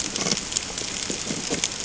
{"label": "ambient", "recorder": "HydroMoth"}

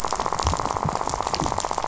{"label": "biophony, rattle", "recorder": "SoundTrap 500"}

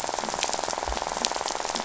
{"label": "biophony, rattle", "recorder": "SoundTrap 500"}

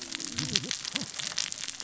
{"label": "biophony, cascading saw", "recorder": "SoundTrap 600 or HydroMoth"}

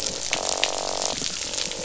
{"label": "biophony, croak", "recorder": "SoundTrap 500"}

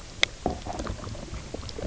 {"label": "biophony, knock croak", "recorder": "SoundTrap 300"}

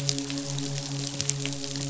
{"label": "biophony, midshipman", "recorder": "SoundTrap 500"}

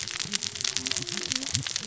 {"label": "biophony, cascading saw", "recorder": "SoundTrap 600 or HydroMoth"}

